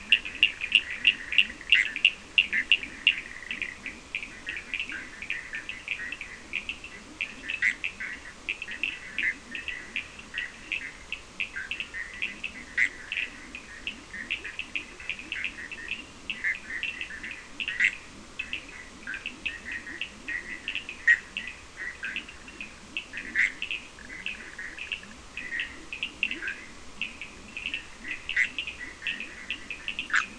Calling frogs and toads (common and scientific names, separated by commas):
Bischoff's tree frog (Boana bischoffi), Leptodactylus latrans, Cochran's lime tree frog (Sphaenorhynchus surdus)